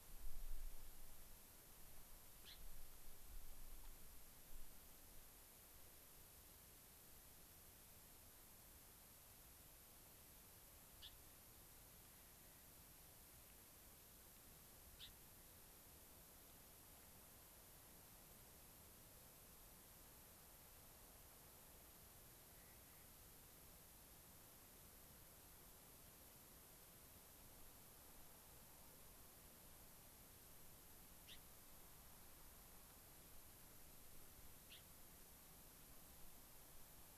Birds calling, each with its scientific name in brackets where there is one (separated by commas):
Clark's Nutcracker (Nucifraga columbiana), Gray-crowned Rosy-Finch (Leucosticte tephrocotis)